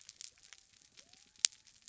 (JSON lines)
{"label": "biophony", "recorder": "SoundTrap 300"}